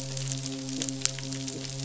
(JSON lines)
{"label": "biophony, midshipman", "recorder": "SoundTrap 500"}